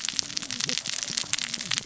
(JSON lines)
{"label": "biophony, cascading saw", "recorder": "SoundTrap 600 or HydroMoth"}